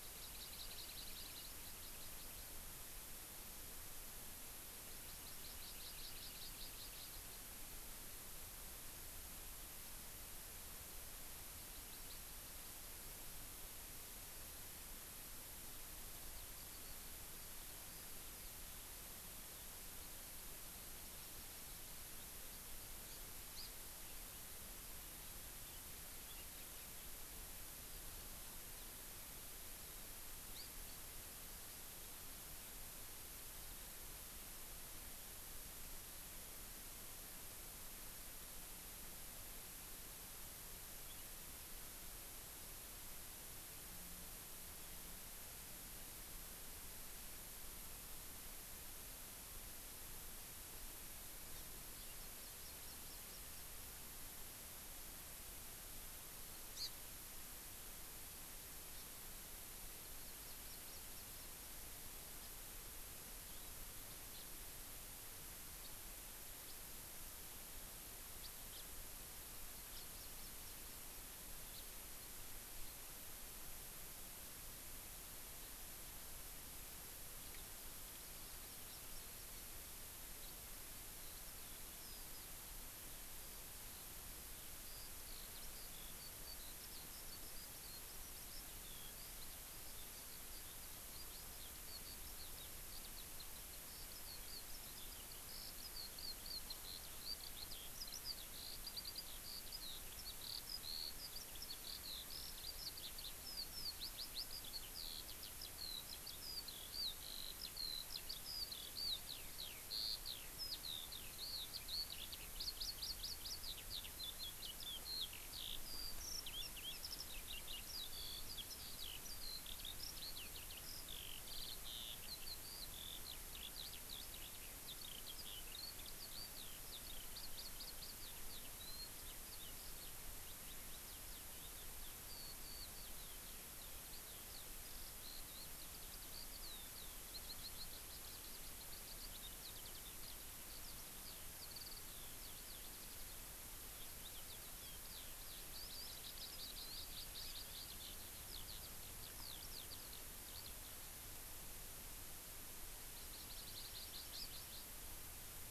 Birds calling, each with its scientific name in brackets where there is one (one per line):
Eurasian Skylark (Alauda arvensis)
Hawaii Amakihi (Chlorodrepanis virens)
House Finch (Haemorhous mexicanus)